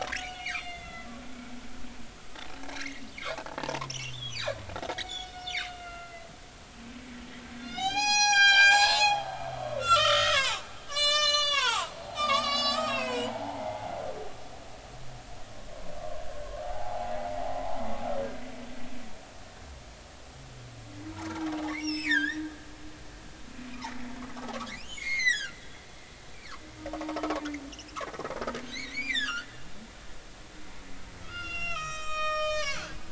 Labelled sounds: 0.1	1.1	humpback whale, 1.3 to 3.6 kHz
2.7	3.0	humpback whale, 1.8 to 2.3 kHz
3.6	4.4	humpback whale, 0.83 to 6.2 kHz
5.0	6.3	humpback whale, 1.3 to 4.5 kHz
7.6	10.6	humpback whale, 0.80 to 8.0 kHz
10.9	13.9	humpback whale, 0.80 to 8.0 kHz
16.0	17.1	humpback whale, 0.80 to 1.2 kHz
17.5	17.8	humpback whale, 0.80 to 1.1 kHz
21.6	22.7	humpback whale, 1.5 to 5.8 kHz
23.8	25.6	humpback whale, 1.3 to 6.6 kHz
27.0	27.3	humpback whale, 0.83 to 1.2 kHz
28.6	29.5	humpback whale, 1.1 to 6.8 kHz
31.2	33.0	humpback whale, 0.96 to 8.0 kHz

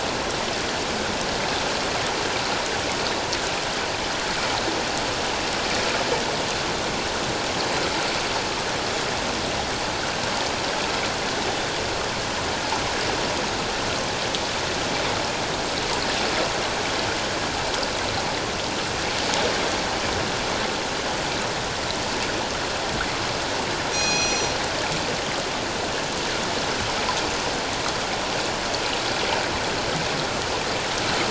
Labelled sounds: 23.9	24.5	killer whale, northern resident, G clan, 2.4 to 7.6 kHz

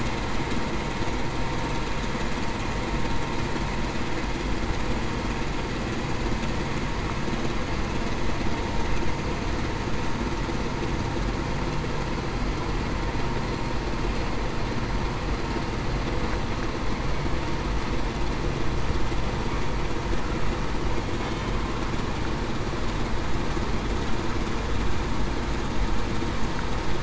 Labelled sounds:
21.2	21.6	killer whale, Bigg's (transient), 3.0 to 3.1 kHz

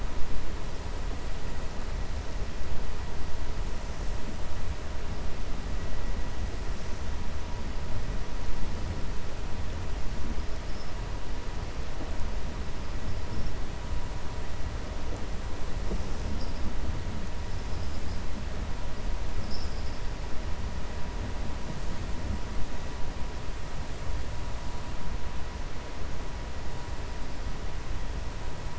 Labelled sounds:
19.4	20.0	vessel noise, 4.5 to 5.7 kHz

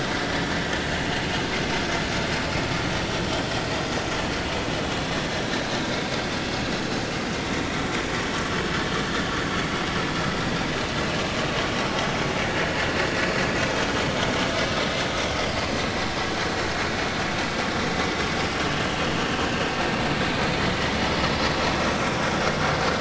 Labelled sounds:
5.7	6.0	vessel noise, 3.5 to 3.9 kHz

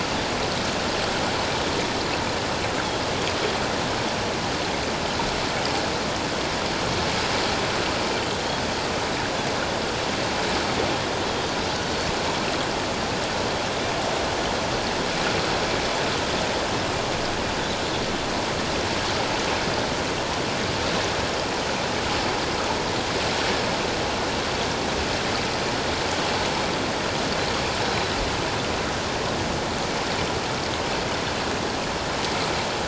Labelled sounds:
11.8	12.1	Pacific white-sided dolphin, 4.3 to 4.5 kHz

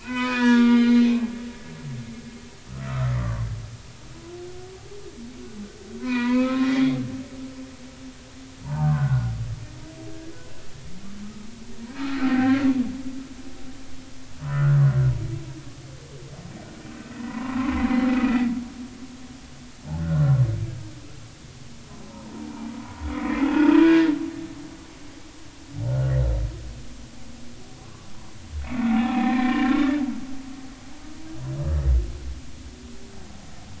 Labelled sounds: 0.0	1.1	humpback whale, 0.90 to 5.1 kHz
3.2	4.2	humpback whale, 0.99 to 1.4 kHz
6.0	7.0	humpback whale, 0.90 to 4.8 kHz
8.6	9.3	humpback whale, 0.80 to 1.6 kHz
12.2	12.6	humpback whale, 0.80 to 1.7 kHz
14.4	15.1	humpback whale, 0.93 to 1.5 kHz
17.3	18.5	humpback whale, 0.90 to 2.0 kHz
20.0	20.4	humpback whale, 1.3 to 1.6 kHz
22.0	22.7	humpback whale, 0.80 to 1.1 kHz
23.1	24.1	humpback whale, 1.6 to 3.5 kHz
25.9	26.1	humpback whale, 1.4 to 1.5 kHz
27.8	28.1	humpback whale, 0.99 to 1.2 kHz
28.9	30.0	humpback whale, 0.80 to 2.6 kHz

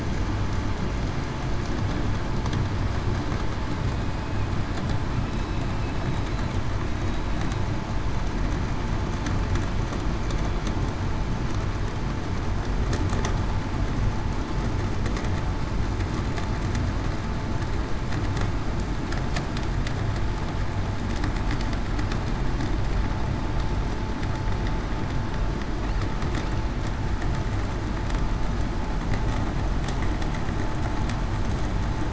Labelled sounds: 5.3	5.6	killer whale, southern resident, 3.87 to 3.94 kHz
6.9	7.3	killer whale, southern resident, 3.8 to 3.9 kHz

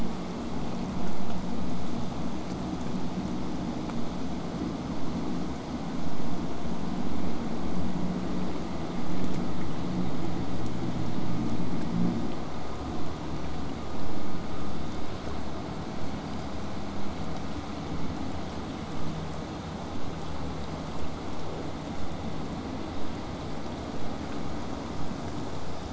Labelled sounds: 4.9	9.9	vessel noise, 0 to 8.0 kHz
15.9	16.6	killer whale, whistle, 4.2 to 5.0 kHz

